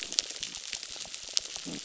{"label": "biophony", "recorder": "SoundTrap 600"}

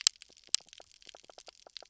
{"label": "biophony, knock croak", "recorder": "SoundTrap 300"}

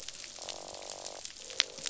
{"label": "biophony, croak", "recorder": "SoundTrap 500"}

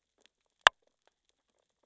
{"label": "biophony, sea urchins (Echinidae)", "recorder": "SoundTrap 600 or HydroMoth"}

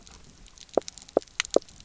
{"label": "biophony, knock croak", "recorder": "SoundTrap 300"}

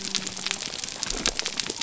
{"label": "biophony", "recorder": "SoundTrap 300"}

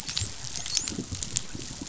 {"label": "biophony, dolphin", "recorder": "SoundTrap 500"}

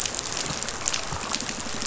{"label": "biophony", "recorder": "SoundTrap 500"}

